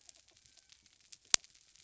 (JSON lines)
{"label": "biophony", "recorder": "SoundTrap 300"}